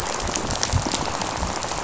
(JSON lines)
{"label": "biophony, rattle", "recorder": "SoundTrap 500"}